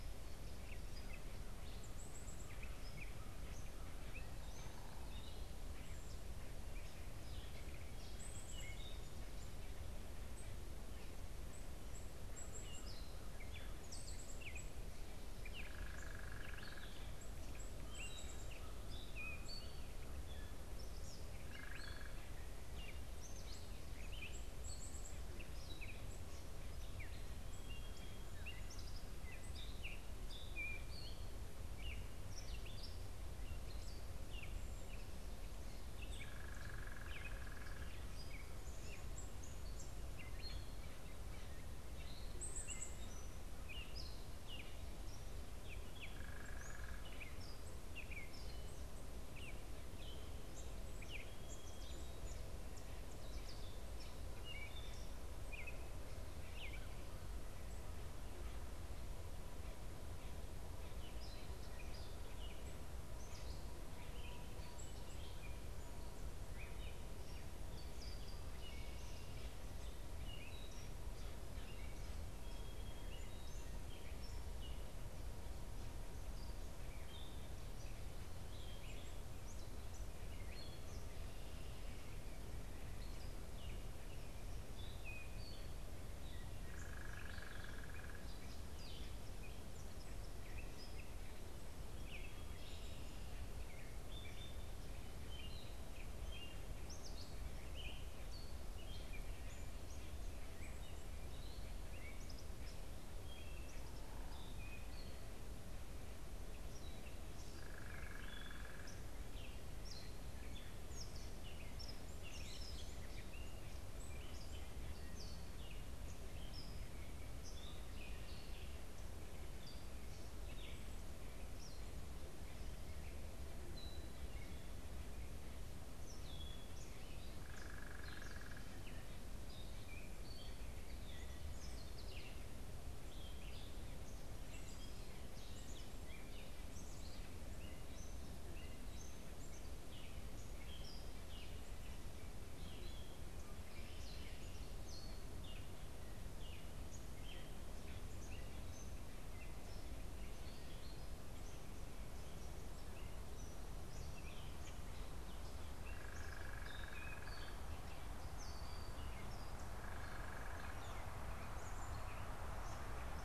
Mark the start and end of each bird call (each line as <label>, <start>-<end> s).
Gray Catbird (Dumetella carolinensis), 0.0-9.6 s
Black-capped Chickadee (Poecile atricapillus), 0.0-12.6 s
Gray Catbird (Dumetella carolinensis), 12.6-71.1 s
Black-capped Chickadee (Poecile atricapillus), 13.6-25.3 s
unidentified bird, 15.5-17.0 s
unidentified bird, 21.4-22.1 s
unidentified bird, 36.2-38.0 s
Black-capped Chickadee (Poecile atricapillus), 42.2-43.1 s
unidentified bird, 46.1-47.1 s
Gray Catbird (Dumetella carolinensis), 71.5-163.2 s
Song Sparrow (Melospiza melodia), 72.1-73.1 s
unidentified bird, 86.3-88.5 s
unidentified bird, 107.5-109.1 s
unidentified bird, 127.4-128.7 s
Hairy Woodpecker (Dryobates villosus), 155.8-157.7 s
unidentified bird, 159.7-160.8 s